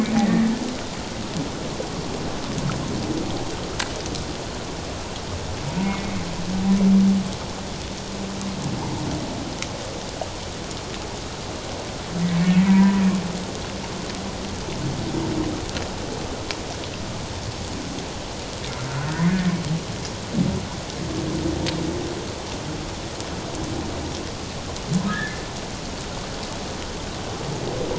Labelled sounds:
0.2	0.4	humpback whale, 1.8 to 2.1 kHz
12.4	13.0	humpback whale, 0.91 to 2.4 kHz
25.1	25.4	humpback whale, 1.6 to 1.9 kHz

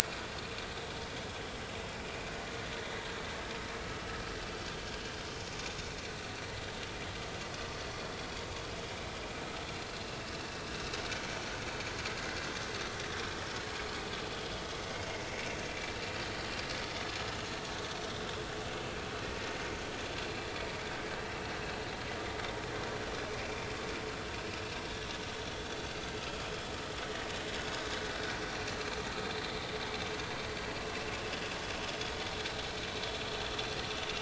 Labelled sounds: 15.7	16.0	vessel noise, 2.3 to 2.4 kHz
26.2	26.5	vessel noise, 3.2 to 3.4 kHz
31.7	32.0	vessel noise, 6.3 to 6.5 kHz

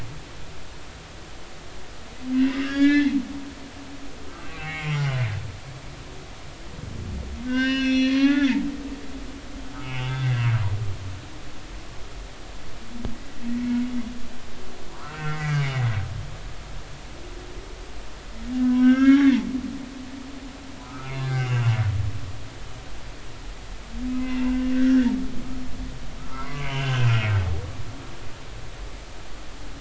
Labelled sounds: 2.3	3.1	humpback whale, 1.3 to 6.8 kHz
4.3	5.1	humpback whale, 0.80 to 3.3 kHz
7.5	8.6	humpback whale, 0.80 to 5.9 kHz
9.8	10.4	humpback whale, 0.80 to 3.6 kHz
14.9	15.6	humpback whale, 0.90 to 2.7 kHz
18.7	19.3	humpback whale, 1.2 to 3.6 kHz
20.8	21.8	humpback whale, 1.2 to 2.9 kHz
24.1	25.6	humpback whale, 0.96 to 2.8 kHz
26.2	27.3	humpback whale, 0.90 to 3.1 kHz

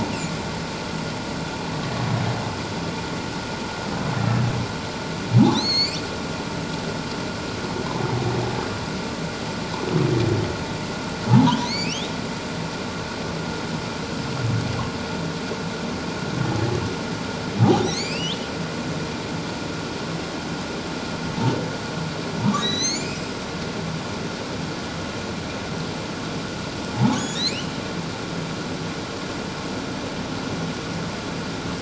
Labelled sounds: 4.2	4.5	humpback whale, 1.6 to 1.9 kHz
5.5	6.0	humpback whale, 2.1 to 6.9 kHz
11.3	12.1	humpback whale, 0.78 to 4.7 kHz
17.7	18.5	humpback whale, 1.8 to 7.5 kHz
22.6	23.4	humpback whale, 1.8 to 8.0 kHz
27.1	27.7	humpback whale, 2.2 to 7.0 kHz

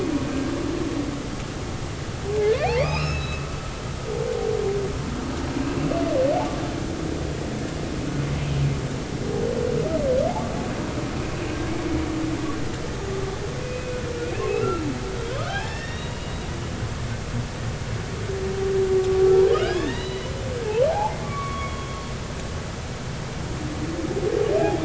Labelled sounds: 2.7	3.5	humpback whale, 1.1 to 5.5 kHz
13.6	14.8	humpback whale, 1.2 to 2.8 kHz
15.4	16.4	humpback whale, 0.80 to 5.7 kHz
19.5	20.3	humpback whale, 1.4 to 4.0 kHz
20.9	22.0	humpback whale, 0.80 to 3.4 kHz

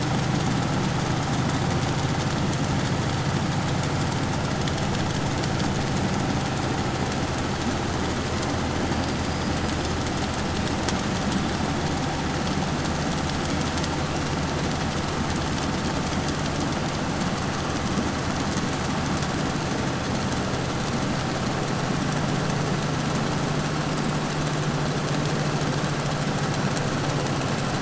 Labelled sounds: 8.1	10.1	killer whale, 4.5 to 5.4 kHz
26.2	27.0	killer whale, 5.3 to 6.0 kHz

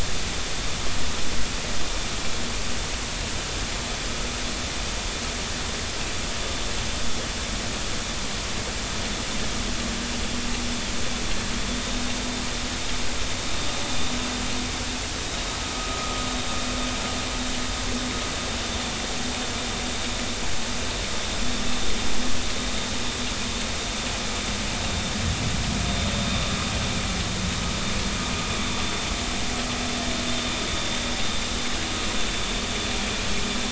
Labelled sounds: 15.7	16.2	vessel noise, 1.2 to 1.4 kHz

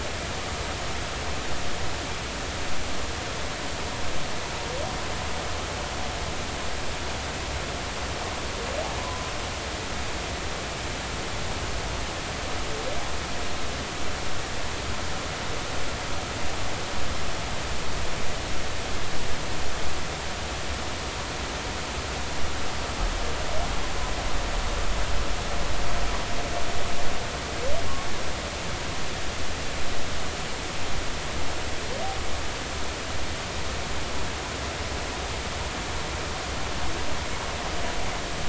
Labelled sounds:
9.0	9.3	humpback whale, 0.96 to 1.1 kHz

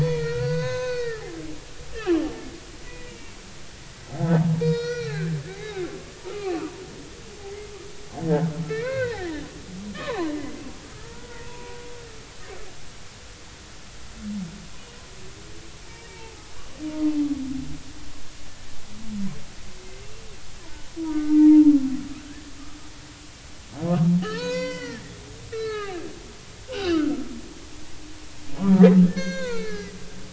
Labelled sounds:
0.0	1.3	humpback whale, 0.93 to 6.7 kHz
1.9	2.2	humpback whale, 1.0 to 3.3 kHz
2.8	3.4	humpback whale, 1.9 to 2.9 kHz
4.6	5.4	humpback whale, 1.2 to 5.9 kHz
6.2	6.7	humpback whale, 1.1 to 2.7 kHz
8.7	9.5	humpback whale, 0.80 to 4.3 kHz
9.9	11.8	humpback whale, 0.80 to 4.3 kHz
16.1	16.5	humpback whale, 0.80 to 0.96 kHz
21.0	21.6	humpback whale, 0.86 to 2.0 kHz
24.2	26.0	humpback whale, 0.80 to 7.2 kHz
26.7	27.2	humpback whale, 1.2 to 4.1 kHz
28.6	30.0	humpback whale, 0.86 to 6.5 kHz

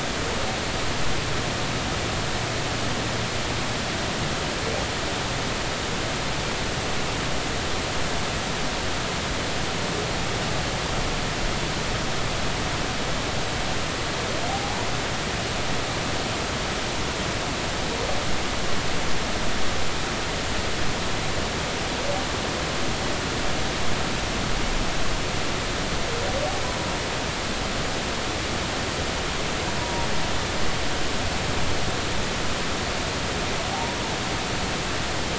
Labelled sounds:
14.5	14.9	humpback whale, 0.80 to 0.99 kHz
29.8	30.1	humpback whale, 0.90 to 0.99 kHz

